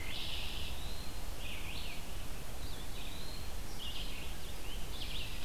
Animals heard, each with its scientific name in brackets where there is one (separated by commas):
Red-eyed Vireo (Vireo olivaceus), Eastern Wood-Pewee (Contopus virens), Red-winged Blackbird (Agelaius phoeniceus)